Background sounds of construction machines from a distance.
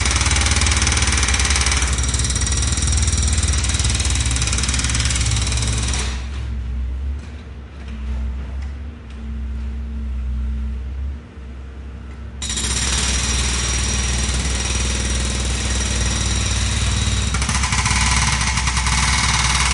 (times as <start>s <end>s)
6.2s 12.4s